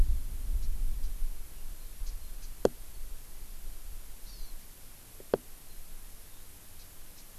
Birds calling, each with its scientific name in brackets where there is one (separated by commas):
Japanese Bush Warbler (Horornis diphone), Hawaii Amakihi (Chlorodrepanis virens)